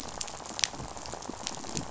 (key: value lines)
label: biophony, rattle
recorder: SoundTrap 500